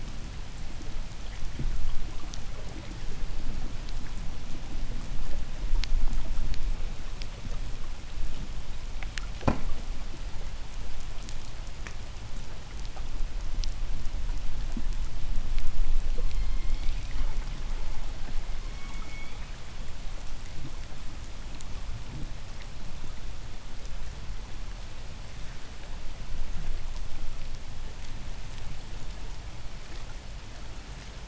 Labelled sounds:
16.0	17.5	killer whale, southern resident, J pod, 0.85 to 5.4 kHz
18.2	19.7	killer whale, southern resident, J pod, 0.91 to 6.0 kHz

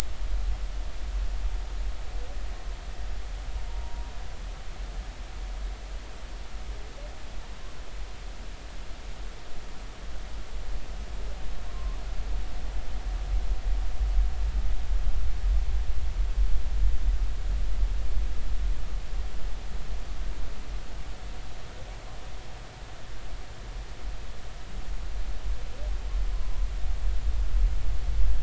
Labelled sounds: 3.7	4.1	humpback whale, 0.86 to 0.99 kHz
11.7	12.0	humpback whale, 0.99 to 1.2 kHz

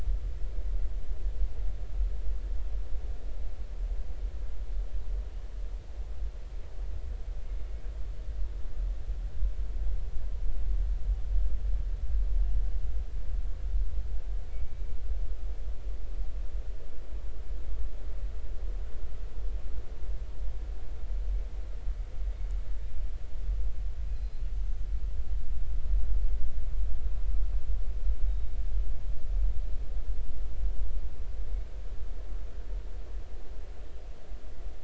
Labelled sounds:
14.5	14.9	killer whale, northern resident, 2.2 to 2.3 kHz
24.1	24.9	killer whale, northern resident, 4.1 to 6.3 kHz

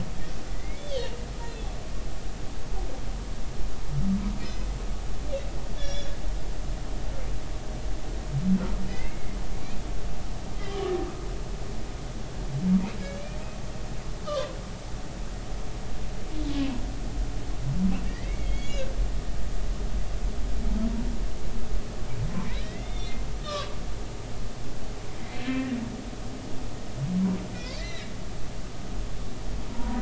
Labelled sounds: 0.5	1.1	humpback whale, 1.9 to 3.6 kHz
5.8	6.2	humpback whale, 1.6 to 6.9 kHz
8.9	9.4	humpback whale, 1.9 to 2.3 kHz
10.6	10.9	humpback whale, 2.9 to 3.3 kHz
14.3	14.5	humpback whale, 0.96 to 1.3 kHz
16.6	16.8	humpback whale, 0.93 to 1.1 kHz
18.0	18.9	humpback whale, 1.8 to 3.5 kHz
22.6	23.8	humpback whale, 1.0 to 3.7 kHz
25.4	25.7	humpback whale, 1.7 to 2.5 kHz
27.5	28.1	humpback whale, 1.8 to 5.1 kHz
29.7	29.9	humpback whale, 0.90 to 1.0 kHz

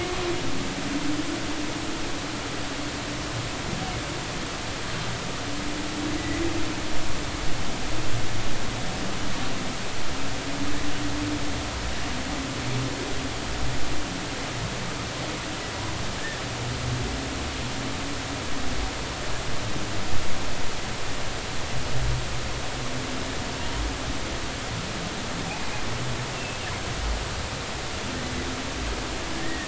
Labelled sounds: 6.2	6.4	humpback whale, 1.9 to 2.1 kHz
26.3	26.6	humpback whale, 2.6 to 2.8 kHz
29.4	29.6	humpback whale, 1.7 to 2.0 kHz

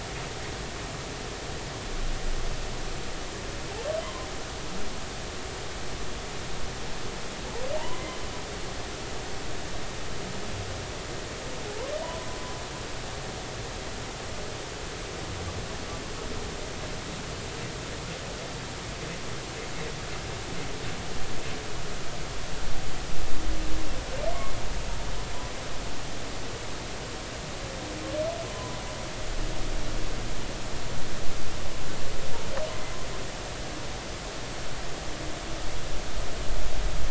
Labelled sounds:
7.8	8.1	humpback whale, 0.80 to 1.1 kHz
12.0	12.3	humpback whale, 0.93 to 1.1 kHz
28.5	28.8	humpback whale, 0.96 to 1.1 kHz

